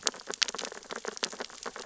{"label": "biophony, sea urchins (Echinidae)", "recorder": "SoundTrap 600 or HydroMoth"}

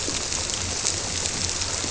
{"label": "biophony", "recorder": "SoundTrap 300"}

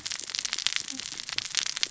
{"label": "biophony, cascading saw", "recorder": "SoundTrap 600 or HydroMoth"}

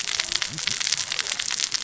{"label": "biophony, cascading saw", "recorder": "SoundTrap 600 or HydroMoth"}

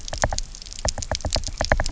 {"label": "biophony, knock", "recorder": "SoundTrap 300"}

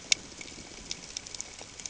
{"label": "ambient", "recorder": "HydroMoth"}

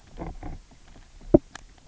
{"label": "biophony, knock croak", "recorder": "SoundTrap 300"}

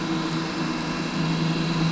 {"label": "anthrophony, boat engine", "recorder": "SoundTrap 500"}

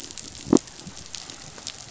{"label": "biophony", "recorder": "SoundTrap 500"}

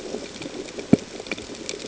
{"label": "ambient", "recorder": "HydroMoth"}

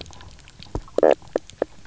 {"label": "biophony, knock croak", "recorder": "SoundTrap 300"}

